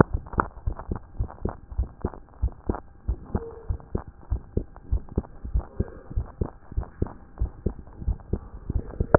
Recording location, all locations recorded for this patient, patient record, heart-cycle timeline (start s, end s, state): tricuspid valve (TV)
aortic valve (AV)+pulmonary valve (PV)+tricuspid valve (TV)+tricuspid valve (TV)+mitral valve (MV)
#Age: Child
#Sex: Female
#Height: 135.0 cm
#Weight: 33.5 kg
#Pregnancy status: False
#Murmur: Absent
#Murmur locations: nan
#Most audible location: nan
#Systolic murmur timing: nan
#Systolic murmur shape: nan
#Systolic murmur grading: nan
#Systolic murmur pitch: nan
#Systolic murmur quality: nan
#Diastolic murmur timing: nan
#Diastolic murmur shape: nan
#Diastolic murmur grading: nan
#Diastolic murmur pitch: nan
#Diastolic murmur quality: nan
#Outcome: Normal
#Campaign: 2014 screening campaign
0.00	0.66	unannotated
0.66	0.76	S1
0.76	0.90	systole
0.90	0.98	S2
0.98	1.18	diastole
1.18	1.30	S1
1.30	1.44	systole
1.44	1.54	S2
1.54	1.76	diastole
1.76	1.88	S1
1.88	2.02	systole
2.02	2.12	S2
2.12	2.42	diastole
2.42	2.52	S1
2.52	2.68	systole
2.68	2.78	S2
2.78	3.08	diastole
3.08	3.18	S1
3.18	3.32	systole
3.32	3.42	S2
3.42	3.68	diastole
3.68	3.80	S1
3.80	3.94	systole
3.94	4.02	S2
4.02	4.30	diastole
4.30	4.42	S1
4.42	4.56	systole
4.56	4.66	S2
4.66	4.90	diastole
4.90	5.02	S1
5.02	5.16	systole
5.16	5.24	S2
5.24	5.52	diastole
5.52	5.64	S1
5.64	5.78	systole
5.78	5.88	S2
5.88	6.14	diastole
6.14	6.26	S1
6.26	6.40	systole
6.40	6.50	S2
6.50	6.76	diastole
6.76	6.86	S1
6.86	7.00	systole
7.00	7.10	S2
7.10	7.40	diastole
7.40	7.50	S1
7.50	7.64	systole
7.64	7.74	S2
7.74	8.06	diastole
8.06	8.18	S1
8.18	8.32	systole
8.32	8.42	S2
8.42	8.69	diastole
8.69	9.18	unannotated